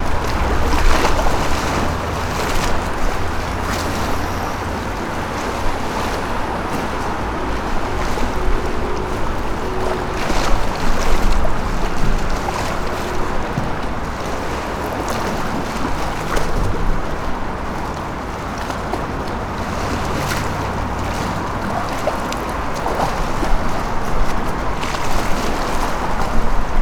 Are birds singing?
no